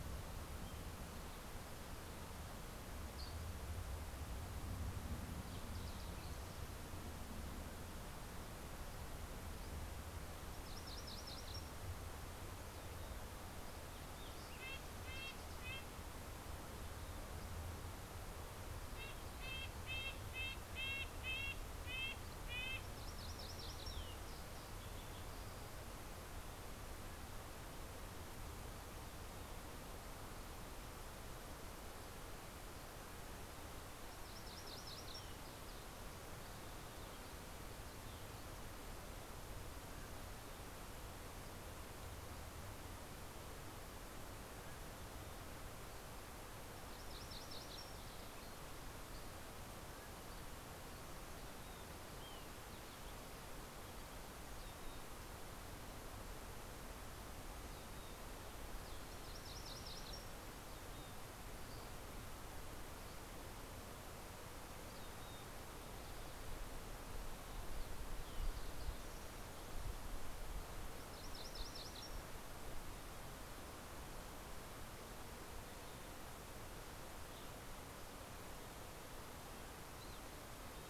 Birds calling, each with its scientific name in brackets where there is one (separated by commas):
Mountain Chickadee (Poecile gambeli), Dusky Flycatcher (Empidonax oberholseri), Green-tailed Towhee (Pipilo chlorurus), Fox Sparrow (Passerella iliaca), MacGillivray's Warbler (Geothlypis tolmiei), Red-breasted Nuthatch (Sitta canadensis)